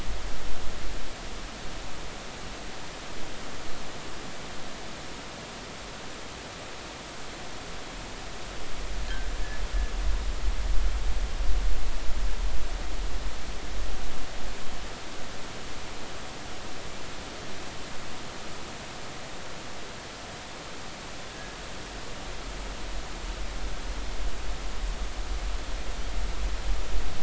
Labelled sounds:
21.3	21.6	fishing gear, 1.6 to 1.7 kHz

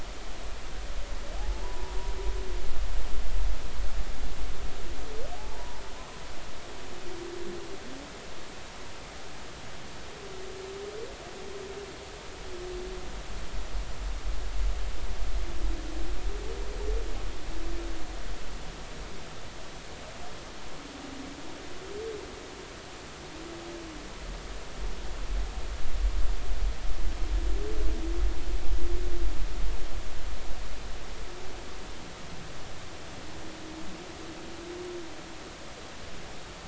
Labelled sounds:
1.4	2.0	humpback whale, 0.80 to 1.0 kHz
5.4	5.8	humpback whale, 0.80 to 1.0 kHz

